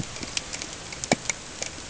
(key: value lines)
label: ambient
recorder: HydroMoth